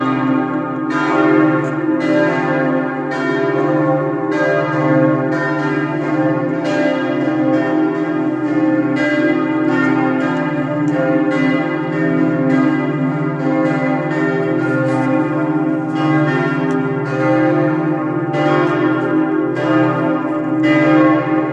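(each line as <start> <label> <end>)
0.0 Loud, echoing chimes with rich metallic tones ring in a rhythmic pattern. 21.5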